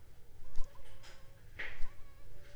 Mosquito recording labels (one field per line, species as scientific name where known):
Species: Anopheles funestus s.s.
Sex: female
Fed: unfed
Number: one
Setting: cup